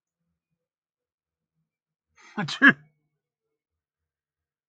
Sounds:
Sneeze